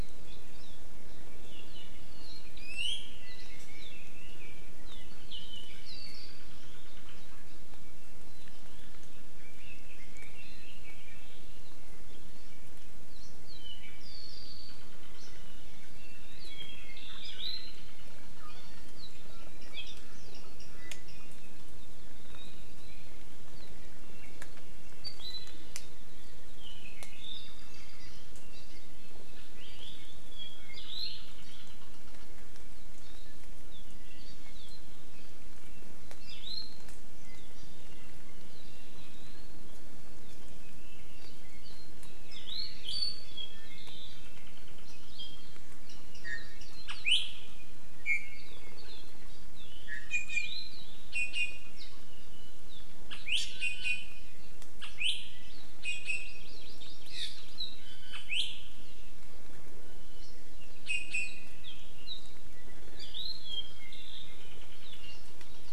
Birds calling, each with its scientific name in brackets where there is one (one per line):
Red-billed Leiothrix (Leiothrix lutea)
Iiwi (Drepanis coccinea)
Hawaii Amakihi (Chlorodrepanis virens)
Apapane (Himatione sanguinea)